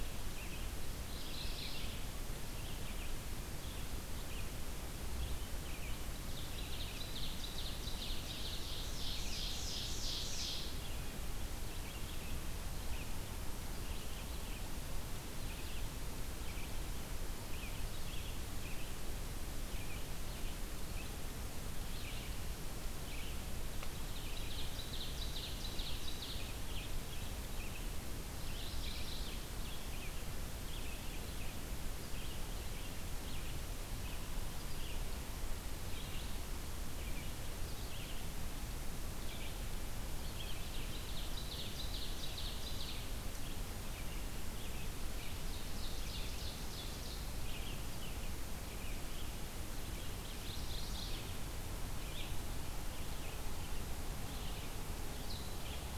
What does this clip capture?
Red-eyed Vireo, Mourning Warbler, Ovenbird